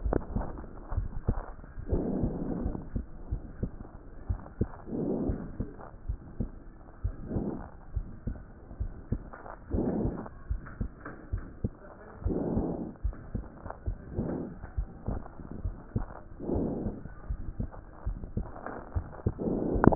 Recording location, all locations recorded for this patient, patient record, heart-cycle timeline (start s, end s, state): pulmonary valve (PV)
pulmonary valve (PV)+tricuspid valve (TV)+mitral valve (MV)
#Age: Child
#Sex: Female
#Height: 121.0 cm
#Weight: 20.9 kg
#Pregnancy status: False
#Murmur: Absent
#Murmur locations: nan
#Most audible location: nan
#Systolic murmur timing: nan
#Systolic murmur shape: nan
#Systolic murmur grading: nan
#Systolic murmur pitch: nan
#Systolic murmur quality: nan
#Diastolic murmur timing: nan
#Diastolic murmur shape: nan
#Diastolic murmur grading: nan
#Diastolic murmur pitch: nan
#Diastolic murmur quality: nan
#Outcome: Normal
#Campaign: 2014 screening campaign
0.00	0.12	diastole
0.12	0.18	S1
0.18	0.34	systole
0.34	0.46	S2
0.46	0.94	diastole
0.94	1.08	S1
1.08	1.28	systole
1.28	1.40	S2
1.40	1.90	diastole
1.90	2.06	S1
2.06	2.20	systole
2.20	2.32	S2
2.32	2.62	diastole
2.62	2.74	S1
2.74	2.94	systole
2.94	3.04	S2
3.04	3.30	diastole
3.30	3.42	S1
3.42	3.60	systole
3.60	3.72	S2
3.72	4.28	diastole
4.28	4.40	S1
4.40	4.60	systole
4.60	4.68	S2
4.68	5.24	diastole
5.24	5.38	S1
5.38	5.58	systole
5.58	5.64	S2
5.64	6.08	diastole
6.08	6.18	S1
6.18	6.38	systole
6.38	6.50	S2
6.50	7.04	diastole
7.04	7.16	S1
7.16	7.34	systole
7.34	7.48	S2
7.48	7.94	diastole
7.94	8.06	S1
8.06	8.26	systole
8.26	8.36	S2
8.36	8.80	diastole
8.80	8.92	S1
8.92	9.10	systole
9.10	9.22	S2
9.22	9.74	diastole
9.74	9.90	S1
9.90	10.02	systole
10.02	10.14	S2
10.14	10.50	diastole
10.50	10.60	S1
10.60	10.80	systole
10.80	10.90	S2
10.90	11.32	diastole
11.32	11.44	S1
11.44	11.62	systole
11.62	11.72	S2
11.72	12.24	diastole
12.24	12.40	S1
12.40	12.54	systole
12.54	12.70	S2
12.70	13.04	diastole
13.04	13.16	S1
13.16	13.34	systole
13.34	13.44	S2
13.44	13.86	diastole
13.86	13.98	S1
13.98	14.16	systole
14.16	14.30	S2
14.30	14.76	diastole
14.76	14.88	S1
14.88	15.08	systole
15.08	15.20	S2
15.20	15.64	diastole
15.64	15.74	S1
15.74	15.94	systole
15.94	16.06	S2
16.06	16.50	diastole
16.50	16.68	S1
16.68	16.84	systole
16.84	16.94	S2
16.94	17.30	diastole
17.30	17.40	S1
17.40	17.58	systole
17.58	17.68	S2
17.68	18.06	diastole
18.06	18.18	S1
18.18	18.36	systole
18.36	18.46	S2
18.46	18.94	diastole
18.94	19.06	S1
19.06	19.24	systole
19.24	19.34	S2
19.34	19.47	diastole